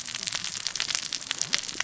{"label": "biophony, cascading saw", "recorder": "SoundTrap 600 or HydroMoth"}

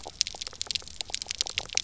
{"label": "biophony, pulse", "recorder": "SoundTrap 300"}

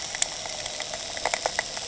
{"label": "anthrophony, boat engine", "recorder": "HydroMoth"}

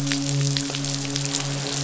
{"label": "biophony, midshipman", "recorder": "SoundTrap 500"}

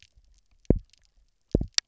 {"label": "biophony, double pulse", "recorder": "SoundTrap 300"}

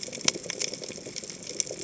{"label": "biophony", "recorder": "HydroMoth"}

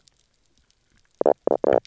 {"label": "biophony, knock croak", "recorder": "SoundTrap 300"}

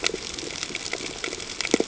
{"label": "ambient", "recorder": "HydroMoth"}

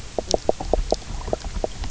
{"label": "biophony, knock croak", "recorder": "SoundTrap 300"}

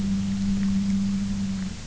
{"label": "anthrophony, boat engine", "recorder": "SoundTrap 300"}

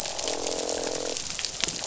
{"label": "biophony, croak", "recorder": "SoundTrap 500"}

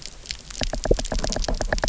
{"label": "biophony, knock", "recorder": "SoundTrap 300"}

